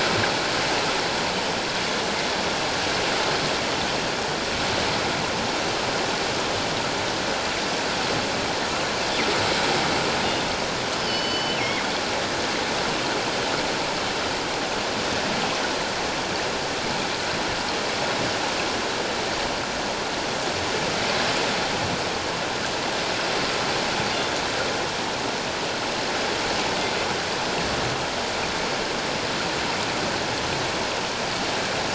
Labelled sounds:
11.0	11.8	killer whale, northern resident, G clan, 2.0 to 5.3 kHz

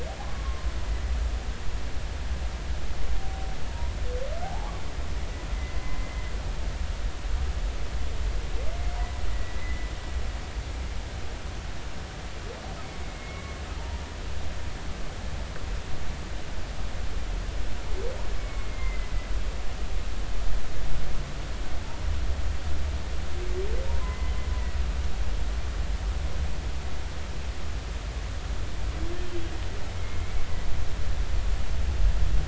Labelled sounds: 0.2	0.7	humpback whale, 0.99 to 1.2 kHz
3.7	4.8	humpback whale, 0.80 to 1.2 kHz
9.3	9.9	humpback whale, 1.9 to 2.1 kHz
13.0	13.6	humpback whale, 2.1 to 2.3 kHz
18.4	19.1	humpback whale, 2.0 to 2.3 kHz
24.0	24.3	humpback whale, 2.0 to 2.1 kHz
30.0	30.4	humpback whale, 2.0 to 2.3 kHz

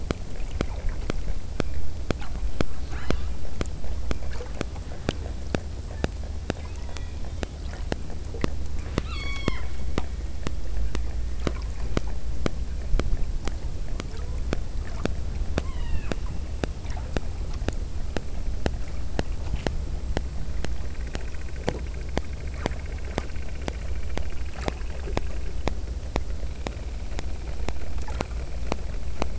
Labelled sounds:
2.9	3.4	killer whale, southern Alaska resident, 0.75 to 7.4 kHz
6.8	7.7	killer whale, southern Alaska resident, 1.7 to 3.8 kHz
9.0	9.8	killer whale, southern Alaska resident, 0.78 to 8.0 kHz
15.7	16.3	killer whale, southern Alaska resident, 0.57 to 5.0 kHz

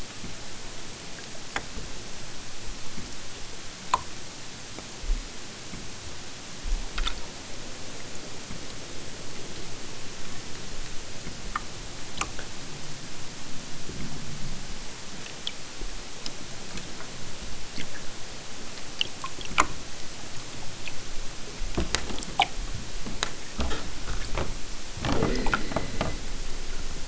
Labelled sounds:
24.9	26.3	killer whale, southern Alaska resident, 1.5 to 6.1 kHz

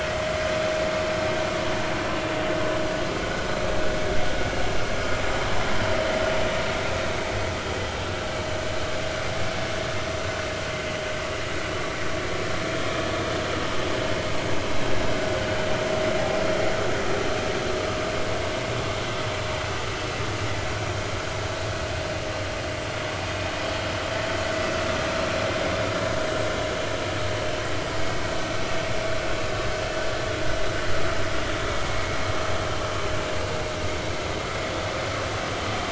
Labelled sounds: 31.9	32.1	vessel noise, 2.1 to 2.3 kHz

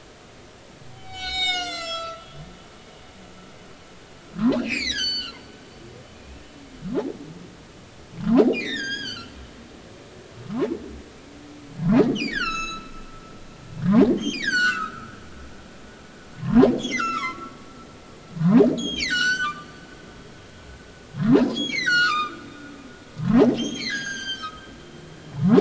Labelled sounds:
0.9	2.3	humpback whale, 0.80 to 8.0 kHz
4.3	5.4	humpback whale, 0.93 to 7.6 kHz
6.1	6.4	humpback whale, 2.3 to 2.7 kHz
8.5	9.4	humpback whale, 1.3 to 8.0 kHz
10.4	10.7	humpback whale, 0.86 to 1.3 kHz
12.1	12.9	humpback whale, 1.2 to 8.0 kHz
13.8	17.6	humpback whale, 0.80 to 8.0 kHz
18.3	19.7	humpback whale, 0.80 to 7.7 kHz
21.5	22.4	humpback whale, 1.1 to 6.9 kHz
23.1	24.6	humpback whale, 0.80 to 8.0 kHz
25.3	25.5	humpback whale, 0.80 to 1.4 kHz

